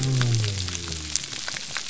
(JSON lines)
{"label": "biophony", "recorder": "SoundTrap 300"}